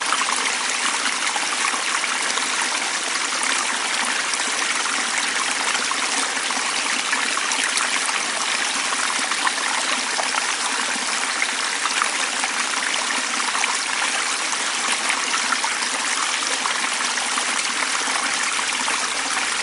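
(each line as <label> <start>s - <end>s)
A stream is flowing loudly nearby. 0.0s - 19.6s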